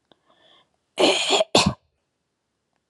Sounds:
Throat clearing